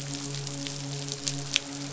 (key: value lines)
label: biophony, midshipman
recorder: SoundTrap 500